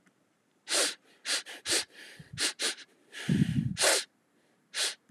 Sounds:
Sniff